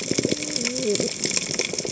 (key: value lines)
label: biophony, cascading saw
recorder: HydroMoth